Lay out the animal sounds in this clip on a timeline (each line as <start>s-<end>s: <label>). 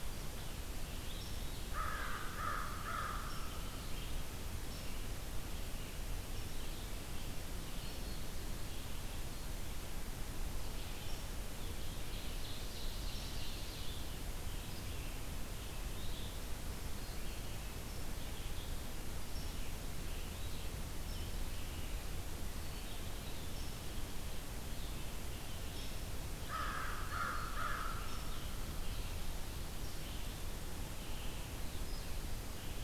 0.0s-21.8s: Red-eyed Vireo (Vireo olivaceus)
1.5s-3.5s: American Crow (Corvus brachyrhynchos)
7.5s-8.3s: Black-throated Green Warbler (Setophaga virens)
11.6s-14.1s: Ovenbird (Seiurus aurocapilla)
22.4s-32.8s: Red-eyed Vireo (Vireo olivaceus)
26.2s-28.1s: American Crow (Corvus brachyrhynchos)
26.6s-27.8s: Black-throated Green Warbler (Setophaga virens)